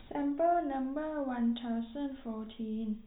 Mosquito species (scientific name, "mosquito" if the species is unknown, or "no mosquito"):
no mosquito